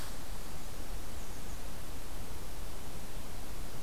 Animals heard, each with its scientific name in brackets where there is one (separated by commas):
American Redstart (Setophaga ruticilla)